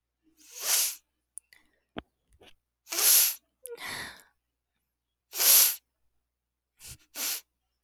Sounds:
Sniff